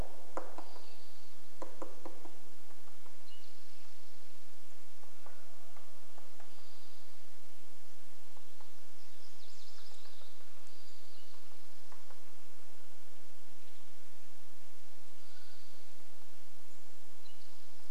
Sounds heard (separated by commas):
MacGillivray's Warbler song, woodpecker drumming, unidentified sound, Mountain Quail call, Western Tanager call, Spotted Towhee song, Townsend's Solitaire call